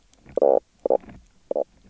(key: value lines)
label: biophony, knock croak
recorder: SoundTrap 300